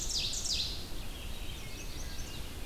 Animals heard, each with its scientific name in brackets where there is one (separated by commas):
Ovenbird (Seiurus aurocapilla), Chestnut-sided Warbler (Setophaga pensylvanica), Red-eyed Vireo (Vireo olivaceus), Wood Thrush (Hylocichla mustelina)